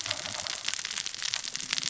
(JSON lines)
{"label": "biophony, cascading saw", "recorder": "SoundTrap 600 or HydroMoth"}